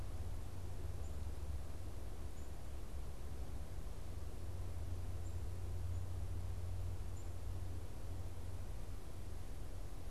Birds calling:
Black-capped Chickadee (Poecile atricapillus)

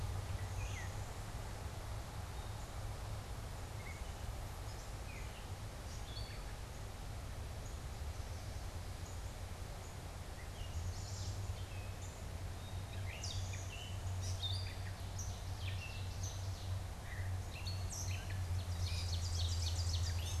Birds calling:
Ovenbird (Seiurus aurocapilla)
Blue-winged Warbler (Vermivora cyanoptera)
Downy Woodpecker (Dryobates pubescens)
Gray Catbird (Dumetella carolinensis)
Northern Cardinal (Cardinalis cardinalis)
Chestnut-sided Warbler (Setophaga pensylvanica)

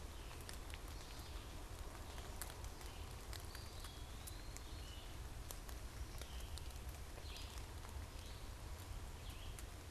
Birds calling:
Red-eyed Vireo (Vireo olivaceus)
unidentified bird
Eastern Wood-Pewee (Contopus virens)

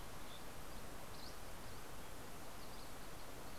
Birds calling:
Dusky Flycatcher (Empidonax oberholseri)

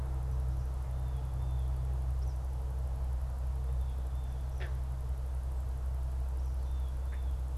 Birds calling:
Blue Jay (Cyanocitta cristata)
Eastern Kingbird (Tyrannus tyrannus)

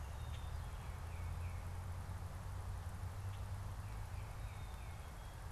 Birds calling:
Tufted Titmouse (Baeolophus bicolor)
Black-capped Chickadee (Poecile atricapillus)

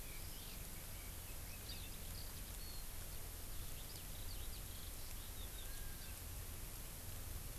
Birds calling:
Eurasian Skylark (Alauda arvensis)

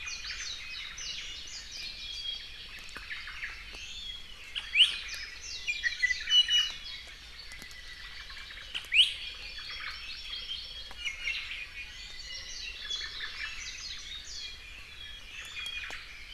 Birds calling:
Iiwi (Drepanis coccinea)
Warbling White-eye (Zosterops japonicus)
Omao (Myadestes obscurus)
Hawaii Amakihi (Chlorodrepanis virens)

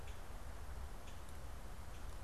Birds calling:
Common Grackle (Quiscalus quiscula)

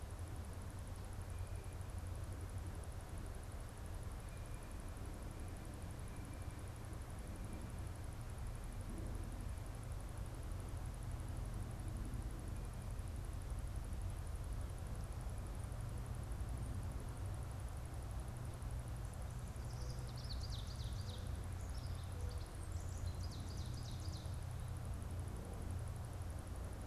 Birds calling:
Ovenbird (Seiurus aurocapilla)

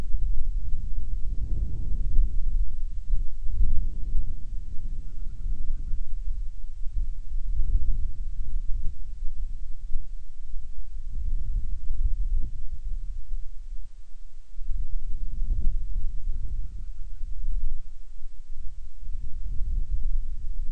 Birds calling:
Band-rumped Storm-Petrel (Hydrobates castro)

